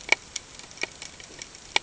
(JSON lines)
{"label": "ambient", "recorder": "HydroMoth"}